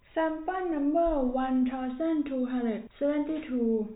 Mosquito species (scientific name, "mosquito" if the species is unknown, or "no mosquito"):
no mosquito